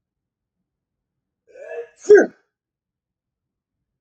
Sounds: Sneeze